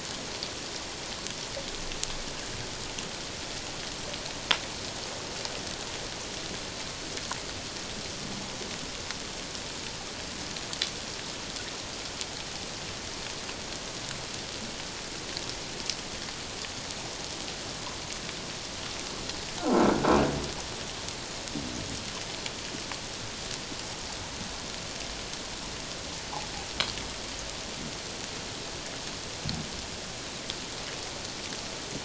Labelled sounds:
19.6	19.9	croaking sound likely from a nearby submerged object, 1.2 to 1.5 kHz

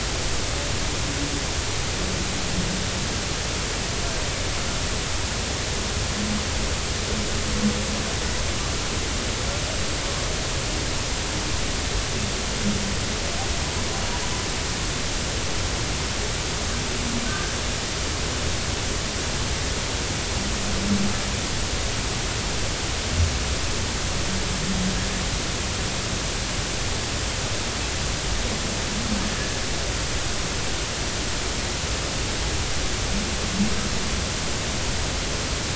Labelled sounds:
17.3	17.5	humpback whale, 1.5 to 1.6 kHz

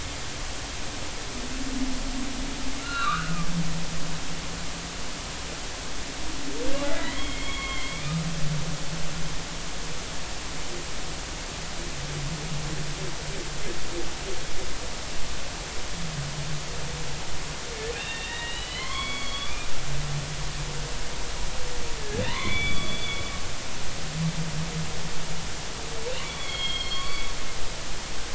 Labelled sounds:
2.8	3.5	humpback whale, 1.1 to 4.0 kHz
6.8	8.0	humpback whale, 1.0 to 3.4 kHz
17.9	19.7	humpback whale, 0.99 to 4.5 kHz
22.2	23.2	humpback whale, 0.86 to 4.6 kHz
26.2	27.3	humpback whale, 1.0 to 4.6 kHz

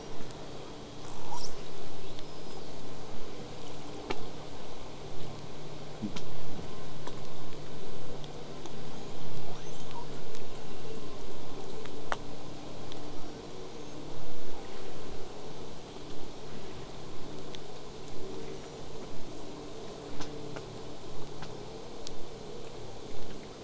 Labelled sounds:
1.0	1.7	killer whale, southern resident, call S08i, 0.58 to 8.0 kHz
2.0	3.0	killer whale, southern resident, 2.3 to 8.0 kHz
8.9	10.1	killer whale, southern resident, L pod, call S02iii, 0.50 to 8.0 kHz
13.1	14.0	killer whale, southern resident, whistle, 5.4 to 8.0 kHz

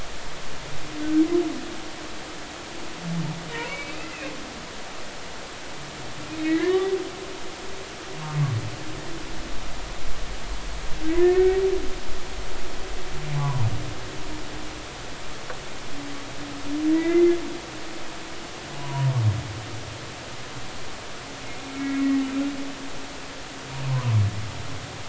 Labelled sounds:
3.7	3.9	humpback whale, 2.2 to 2.4 kHz
6.4	6.9	humpback whale, 0.96 to 4.0 kHz
11.2	11.6	humpback whale, 1.7 to 2.3 kHz
13.4	13.7	humpback whale, 0.80 to 1.2 kHz
16.9	17.2	humpback whale, 1.9 to 2.1 kHz
18.8	19.2	humpback whale, 0.90 to 1.0 kHz
21.8	22.1	humpback whale, 2.1 to 2.3 kHz
23.9	24.2	humpback whale, 0.86 to 1.3 kHz

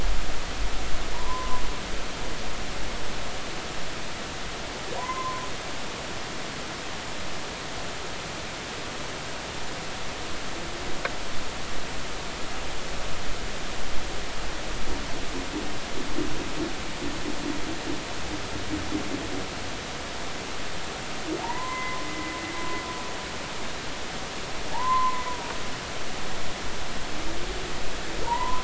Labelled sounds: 1.1	1.6	humpback whale, 0.90 to 1.1 kHz
5.0	5.5	humpback whale, 0.93 to 1.1 kHz
21.4	22.3	humpback whale, 0.80 to 2.1 kHz
24.7	25.3	humpback whale, 0.80 to 1.1 kHz
28.2	28.6	humpback whale, 0.86 to 1.1 kHz

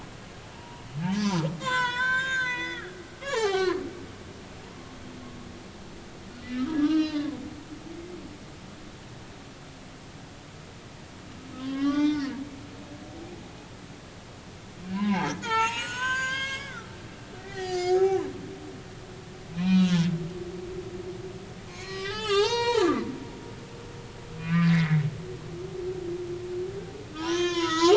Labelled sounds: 0.5	3.8	humpback whale, 0.80 to 8.0 kHz
6.4	7.4	humpback whale, 0.96 to 5.0 kHz
11.6	12.3	humpback whale, 0.99 to 5.5 kHz
13.0	13.2	humpback whale, 0.83 to 0.93 kHz
14.9	16.9	humpback whale, 0.80 to 8.0 kHz
17.4	18.2	humpback whale, 0.80 to 7.1 kHz
19.5	20.1	humpback whale, 2.3 to 3.6 kHz
21.7	23.1	humpback whale, 0.80 to 8.0 kHz
24.4	25.0	humpback whale, 1.1 to 2.5 kHz
27.1	27.9	humpback whale, 0.83 to 8.0 kHz

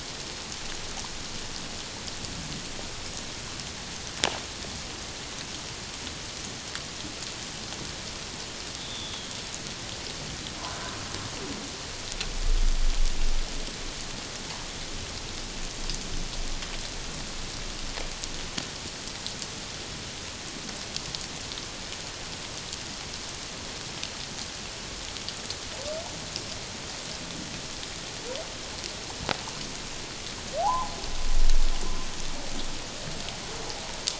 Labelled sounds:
8.8	9.3	humpback whale, 3.2 to 3.7 kHz
30.6	30.9	humpback whale, 0.78 to 1.1 kHz

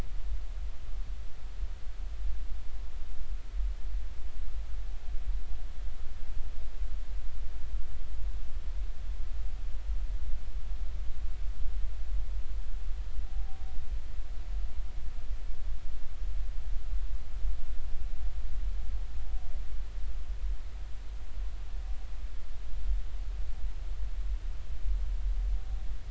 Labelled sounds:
13.3	13.6	humpback whale, 0.80 to 0.86 kHz

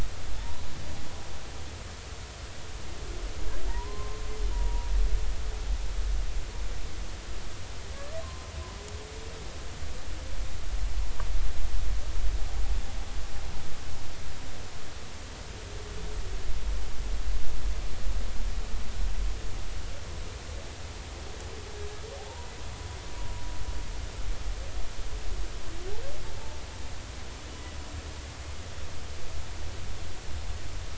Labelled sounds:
0.4	0.6	humpback whale, 0.83 to 1.0 kHz
3.7	4.9	humpback whale, 0.86 to 1.1 kHz
9.2	9.5	humpback whale, 0.99 to 1.1 kHz
22.2	22.5	humpback whale, 0.80 to 1.0 kHz

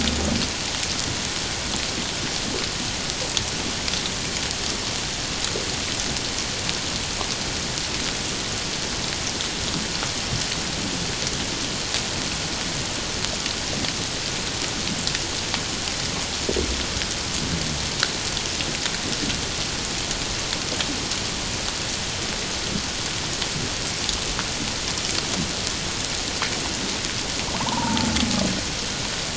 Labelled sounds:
27.6	28.1	humpback whale, 0.81 to 1.1 kHz

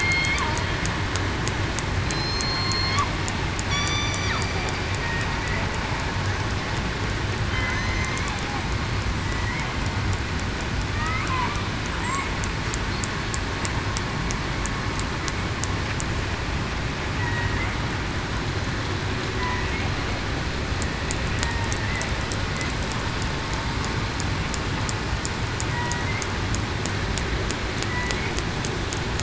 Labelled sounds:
0.0	0.4	killer whale, southern resident, 4.2 to 4.4 kHz
2.0	3.0	killer whale, southern resident, 4.1 to 4.4 kHz
3.7	4.3	killer whale, southern resident, 1.1 to 6.0 kHz
7.5	8.3	killer whale, southern resident, 2.0 to 2.3 kHz
9.2	9.6	killer whale, southern resident, 1.9 to 2.1 kHz
10.9	11.2	killer whale, southern resident, 1.1 to 2.3 kHz
17.2	17.5	killer whale, southern resident, 1.9 to 2.0 kHz
25.7	26.0	killer whale, southern resident, 0.94 to 1.0 kHz

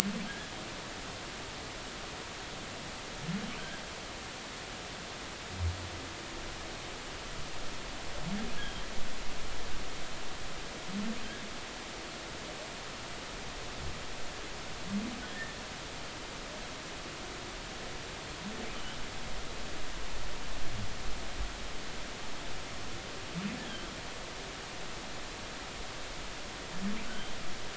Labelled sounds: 8.6	8.8	humpback whale, 3.1 to 3.4 kHz
27.1	27.3	humpback whale, 3.0 to 3.2 kHz

